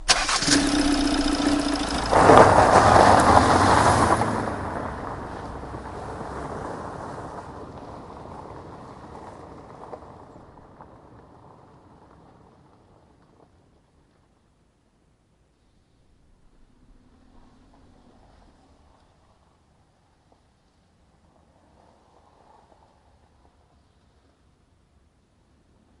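0.0s An engine starts. 2.0s
0.0s Wheels moving on a loose surface. 10.1s
2.1s An engine is running. 4.7s

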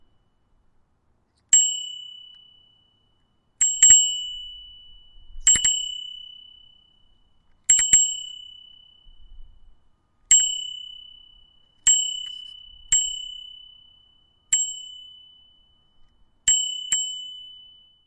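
1.4s A high-pitched bicycle bell rings at irregular intervals with pauses and fades out between rings. 18.1s

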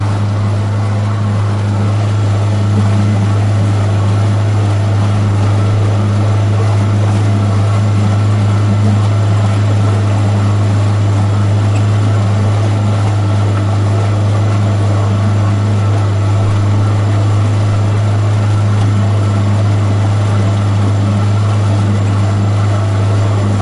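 0.0s A propeller quietly and continuously hits the water in the distance. 23.6s
0.0s A ship motor hums loudly and steadily. 23.6s

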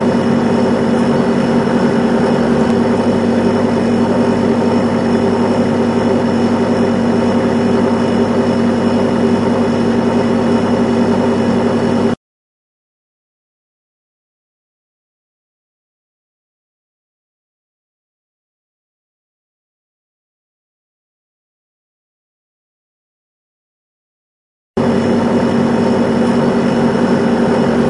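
0.0s A refrigerator hums loudly and monotonously. 12.2s
24.7s A refrigerator hums loudly and monotonously. 27.9s

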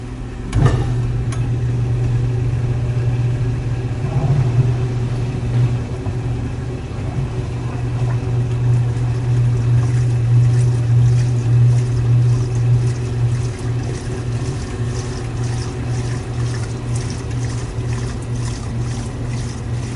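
0.0s The sounds of a laundromat operating indoors. 20.0s
0.5s Camera shutter clicks in a laundromat. 1.5s
4.0s Water being pumped. 4.8s
8.9s The sound of a laundromat rinsing clothes. 20.0s

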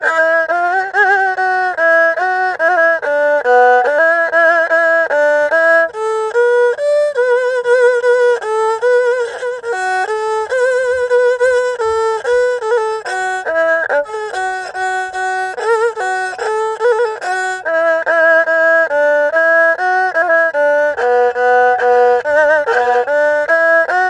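0.0s Traditional Chinese music plays on a single instrument. 24.0s

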